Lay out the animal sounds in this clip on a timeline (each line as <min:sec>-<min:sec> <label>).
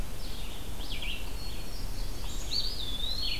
0:00.0-0:03.4 Red-eyed Vireo (Vireo olivaceus)
0:01.1-0:02.5 Hermit Thrush (Catharus guttatus)
0:02.4-0:03.4 Eastern Wood-Pewee (Contopus virens)